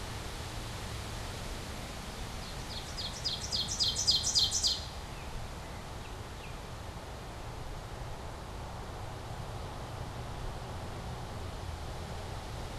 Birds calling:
Baltimore Oriole (Icterus galbula), Ovenbird (Seiurus aurocapilla)

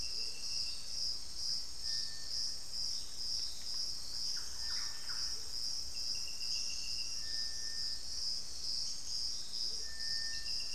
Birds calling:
Amazonian Motmot (Momotus momota), Little Tinamou (Crypturellus soui), Thrush-like Wren (Campylorhynchus turdinus)

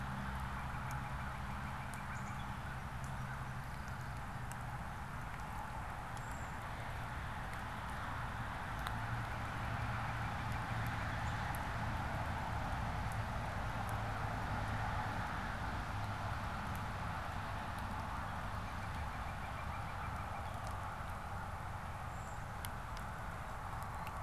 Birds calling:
Northern Cardinal (Cardinalis cardinalis), Brown Creeper (Certhia americana), unidentified bird

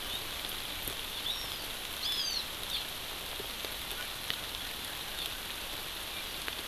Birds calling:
Hawaii Amakihi (Chlorodrepanis virens)

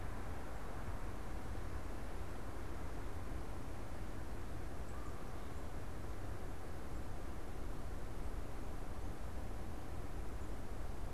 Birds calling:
Canada Goose (Branta canadensis)

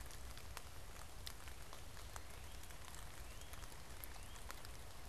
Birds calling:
Northern Cardinal (Cardinalis cardinalis)

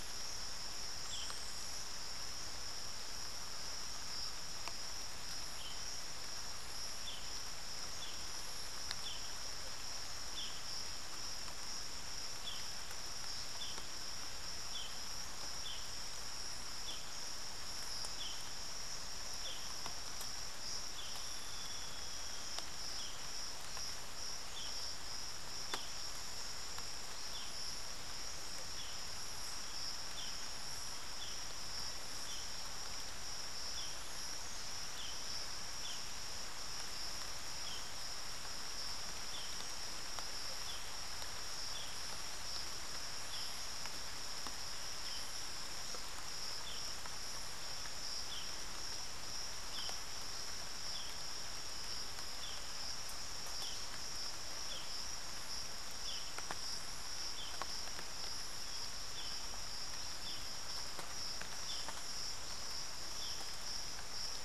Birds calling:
Chestnut-winged Foliage-gleaner (Dendroma erythroptera)

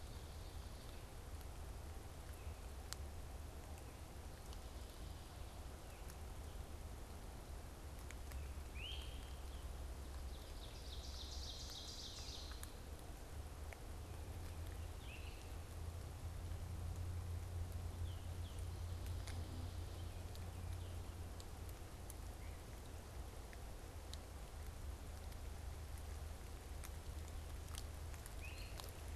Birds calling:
Great Crested Flycatcher (Myiarchus crinitus), Tufted Titmouse (Baeolophus bicolor), Ovenbird (Seiurus aurocapilla)

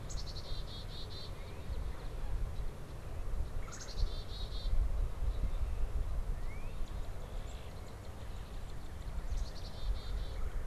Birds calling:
Red-bellied Woodpecker (Melanerpes carolinus), Black-capped Chickadee (Poecile atricapillus), Northern Cardinal (Cardinalis cardinalis)

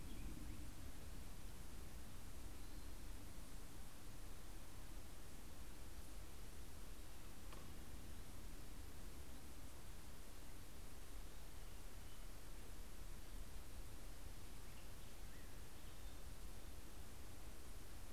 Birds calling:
Black-headed Grosbeak (Pheucticus melanocephalus)

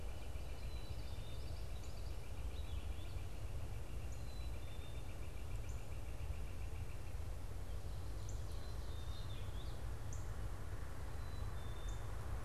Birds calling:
Black-capped Chickadee (Poecile atricapillus), Northern Cardinal (Cardinalis cardinalis), Northern Flicker (Colaptes auratus), Common Yellowthroat (Geothlypis trichas), Purple Finch (Haemorhous purpureus)

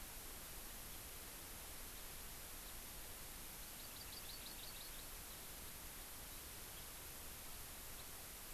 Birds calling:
House Finch (Haemorhous mexicanus), Hawaii Amakihi (Chlorodrepanis virens)

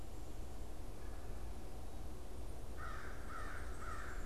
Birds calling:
American Crow (Corvus brachyrhynchos)

